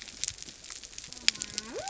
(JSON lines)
{"label": "biophony", "recorder": "SoundTrap 300"}